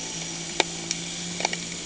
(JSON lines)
{"label": "anthrophony, boat engine", "recorder": "HydroMoth"}